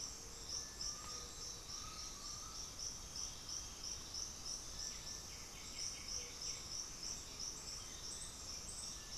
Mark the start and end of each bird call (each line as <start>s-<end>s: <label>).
0.0s-9.2s: Cinereous Tinamou (Crypturellus cinereus)
0.7s-2.9s: Undulated Tinamou (Crypturellus undulatus)
1.2s-2.8s: Black-throated Antbird (Myrmophylax atrothorax)
2.4s-4.2s: unidentified bird
4.9s-7.1s: White-winged Becard (Pachyramphus polychopterus)